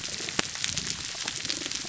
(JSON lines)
{"label": "biophony, damselfish", "recorder": "SoundTrap 300"}